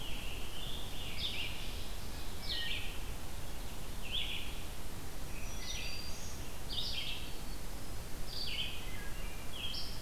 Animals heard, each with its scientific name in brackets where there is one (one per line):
Black-throated Green Warbler (Setophaga virens)
Red-eyed Vireo (Vireo olivaceus)
Wood Thrush (Hylocichla mustelina)
Scarlet Tanager (Piranga olivacea)
Ovenbird (Seiurus aurocapilla)